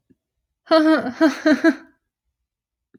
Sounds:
Laughter